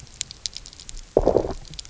{"label": "biophony, low growl", "recorder": "SoundTrap 300"}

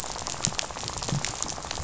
{"label": "biophony, rattle", "recorder": "SoundTrap 500"}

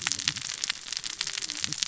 {"label": "biophony, cascading saw", "recorder": "SoundTrap 600 or HydroMoth"}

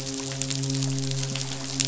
{"label": "biophony, midshipman", "recorder": "SoundTrap 500"}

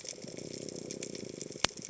{"label": "biophony", "recorder": "HydroMoth"}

